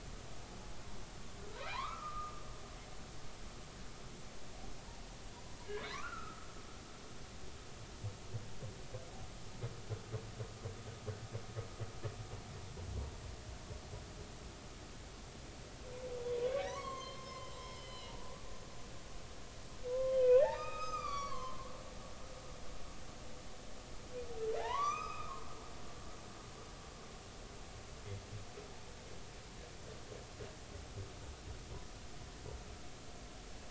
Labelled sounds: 1.5	2.4	humpback whale, 0.80 to 4.4 kHz
5.9	6.5	humpback whale, 0.99 to 2.8 kHz
16.7	18.1	humpback whale, 0.93 to 5.3 kHz
19.9	21.7	humpback whale, 0.80 to 7.6 kHz
24.6	25.4	humpback whale, 0.80 to 6.4 kHz

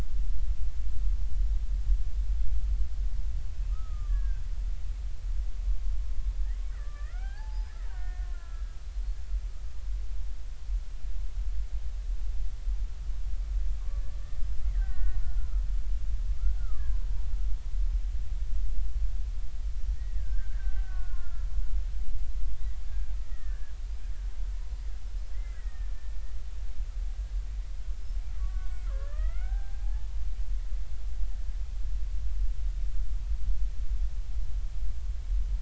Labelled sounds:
3.5	4.4	killer whale, Bigg's (transient), 1.0 to 2.7 kHz
6.7	8.8	killer whale, Bigg's (transient), 0.80 to 2.5 kHz
13.8	15.6	killer whale, Bigg's (transient), 1.0 to 2.0 kHz
16.6	17.1	killer whale, Bigg's (transient), 0.96 to 1.8 kHz
19.9	21.5	killer whale, Bigg's (transient), 1.3 to 2.0 kHz
22.9	23.7	killer whale, Bigg's (transient), 1.4 to 2.0 kHz
25.3	26.1	killer whale, Bigg's (transient), 1.7 to 2.1 kHz
28.4	30.1	killer whale, Bigg's (transient), 0.80 to 2.3 kHz

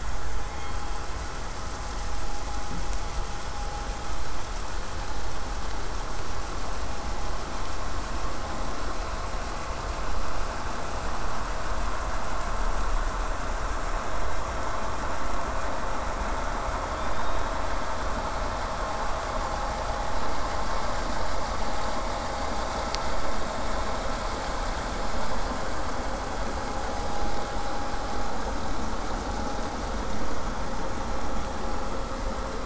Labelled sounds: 0.5	1.0	killer whale, southern resident, K pod, call S16, 0.81 to 4.5 kHz
5.0	10.0	vessel noise, 0 to 8.0 kHz
16.9	17.7	killer whale, southern resident, 2.3 to 5.1 kHz

